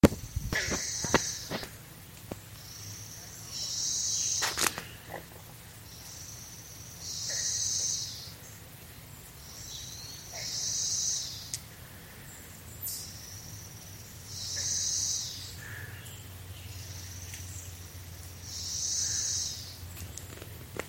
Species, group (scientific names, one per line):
Magicicada cassini
Cicadidae